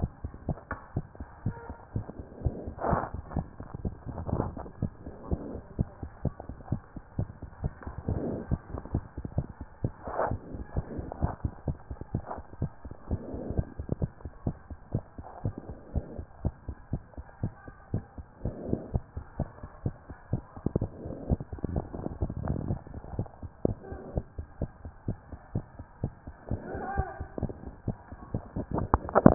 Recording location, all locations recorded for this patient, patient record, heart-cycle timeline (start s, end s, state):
mitral valve (MV)
aortic valve (AV)+mitral valve (MV)
#Age: Child
#Sex: Female
#Height: 103.0 cm
#Weight: 19.1 kg
#Pregnancy status: False
#Murmur: Absent
#Murmur locations: nan
#Most audible location: nan
#Systolic murmur timing: nan
#Systolic murmur shape: nan
#Systolic murmur grading: nan
#Systolic murmur pitch: nan
#Systolic murmur quality: nan
#Diastolic murmur timing: nan
#Diastolic murmur shape: nan
#Diastolic murmur grading: nan
#Diastolic murmur pitch: nan
#Diastolic murmur quality: nan
#Outcome: Normal
#Campaign: 2014 screening campaign
0.10	0.22	systole
0.22	0.32	S2
0.32	0.46	diastole
0.46	0.58	S1
0.58	0.70	systole
0.70	0.78	S2
0.78	0.94	diastole
0.94	1.06	S1
1.06	1.18	systole
1.18	1.26	S2
1.26	1.44	diastole
1.44	1.56	S1
1.56	1.68	systole
1.68	1.76	S2
1.76	1.94	diastole
1.94	2.06	S1
2.06	2.18	systole
2.18	2.26	S2
2.26	2.44	diastole
2.44	2.54	S1
2.54	2.64	systole
2.64	2.74	S2
2.74	2.88	diastole
2.88	3.02	S1
3.02	3.14	systole
3.14	3.22	S2
3.22	3.34	diastole
3.34	3.46	S1
3.46	3.60	systole
3.60	3.68	S2
3.68	3.86	diastole
3.86	3.94	S1
3.94	4.06	systole
4.06	4.14	S2
4.14	4.32	diastole
4.32	4.48	S1
4.48	4.58	systole
4.58	4.66	S2
4.66	4.82	diastole
4.82	4.92	S1
4.92	5.04	systole
5.04	5.14	S2
5.14	5.30	diastole
5.30	5.42	S1
5.42	5.52	systole
5.52	5.62	S2
5.62	5.78	diastole
5.78	5.88	S1
5.88	6.00	systole
6.00	6.10	S2
6.10	6.24	diastole
6.24	6.34	S1
6.34	6.46	systole
6.46	6.56	S2
6.56	6.70	diastole
6.70	6.82	S1
6.82	6.94	systole
6.94	7.02	S2
7.02	7.18	diastole
7.18	7.28	S1
7.28	7.44	systole
7.44	7.50	S2
7.50	7.64	diastole
7.64	7.72	S1
7.72	7.86	systole
7.86	7.94	S2
7.94	8.10	diastole
8.10	8.26	S1
8.26	8.30	systole
8.30	8.38	S2
8.38	8.50	diastole
8.50	8.60	S1
8.60	8.72	systole
8.72	8.80	S2
8.80	8.92	diastole
8.92	9.04	S1
9.04	9.18	systole
9.18	9.24	S2
9.24	9.36	diastole
9.36	9.46	S1
9.46	9.60	systole
9.60	9.66	S2
9.66	9.82	diastole
9.82	9.92	S1
9.92	10.04	systole
10.04	10.12	S2
10.12	10.28	diastole
10.28	10.40	S1
10.40	10.52	systole
10.52	10.64	S2
10.64	10.74	diastole
10.74	10.86	S1
10.86	10.96	systole
10.96	11.06	S2
11.06	11.20	diastole
11.20	11.32	S1
11.32	11.44	systole
11.44	11.52	S2
11.52	11.66	diastole
11.66	11.78	S1
11.78	11.90	systole
11.90	11.98	S2
11.98	12.12	diastole
12.12	12.24	S1
12.24	12.36	systole
12.36	12.44	S2
12.44	12.60	diastole
12.60	12.70	S1
12.70	12.84	systole
12.84	12.94	S2
12.94	13.10	diastole
13.10	13.20	S1
13.20	13.30	systole
13.30	13.40	S2
13.40	13.54	diastole
13.54	13.66	S1
13.66	13.78	systole
13.78	13.86	S2
13.86	14.00	diastole
14.00	14.10	S1
14.10	14.22	systole
14.22	14.30	S2
14.30	14.46	diastole
14.46	14.56	S1
14.56	14.68	systole
14.68	14.76	S2
14.76	14.92	diastole
14.92	15.04	S1
15.04	15.18	systole
15.18	15.24	S2
15.24	15.44	diastole
15.44	15.54	S1
15.54	15.68	systole
15.68	15.76	S2
15.76	15.94	diastole
15.94	16.04	S1
16.04	16.16	systole
16.16	16.26	S2
16.26	16.44	diastole
16.44	16.54	S1
16.54	16.66	systole
16.66	16.76	S2
16.76	16.92	diastole
16.92	17.02	S1
17.02	17.16	systole
17.16	17.24	S2
17.24	17.42	diastole
17.42	17.52	S1
17.52	17.66	systole
17.66	17.74	S2
17.74	17.92	diastole
17.92	18.04	S1
18.04	18.18	systole
18.18	18.26	S2
18.26	18.44	diastole
18.44	18.54	S1
18.54	18.68	systole
18.68	18.80	S2
18.80	18.92	diastole
18.92	19.02	S1
19.02	19.14	systole
19.14	19.24	S2
19.24	19.38	diastole
19.38	19.48	S1
19.48	19.60	systole
19.60	19.68	S2
19.68	19.84	diastole
19.84	19.94	S1
19.94	20.08	systole
20.08	20.16	S2
20.16	20.32	diastole
20.32	20.42	S1
20.42	20.78	systole
20.78	20.84	S2
20.84	20.88	diastole
20.88	20.90	S1
20.90	21.04	systole
21.04	21.14	S2
21.14	21.28	diastole
21.28	21.40	S1
21.40	21.52	systole
21.52	21.58	S2
21.58	21.72	diastole
21.72	21.84	S1
21.84	21.96	systole
21.96	22.06	S2
22.06	22.28	diastole
22.28	22.32	S1
22.32	22.42	systole
22.42	22.52	S2
22.52	22.54	diastole
22.54	22.56	S1
22.56	22.68	systole
22.68	22.80	S2
22.80	23.16	diastole
23.16	23.28	S1
23.28	23.42	systole
23.42	23.50	S2
23.50	23.66	diastole
23.66	23.78	S1
23.78	23.90	systole
23.90	24.00	S2
24.00	24.14	diastole
24.14	24.26	S1
24.26	24.36	systole
24.36	24.46	S2
24.46	24.60	diastole
24.60	24.70	S1
24.70	24.82	systole
24.82	24.92	S2
24.92	25.06	diastole
25.06	25.18	S1
25.18	25.30	systole
25.30	25.38	S2
25.38	25.54	diastole
25.54	25.64	S1
25.64	25.76	systole
25.76	25.86	S2
25.86	26.02	diastole
26.02	26.12	S1
26.12	26.26	systole
26.26	26.34	S2
26.34	26.50	diastole
26.50	26.62	S1
26.62	26.72	systole
26.72	26.82	S2
26.82	26.96	diastole
26.96	27.08	S1
27.08	27.18	systole
27.18	27.28	S2
27.28	27.40	diastole
27.40	27.52	S1
27.52	27.64	systole
27.64	27.72	S2
27.72	27.88	diastole
27.88	27.96	S1
27.96	28.12	systole
28.12	28.18	S2
28.18	28.34	diastole
28.34	28.42	S1
28.42	28.56	systole
28.56	28.64	S2
28.64	28.92	diastole
28.92	29.00	S1
29.00	29.24	systole
29.24	29.26	S2
29.26	29.28	diastole
29.28	29.34	S1